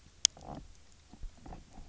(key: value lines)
label: biophony, knock croak
recorder: SoundTrap 300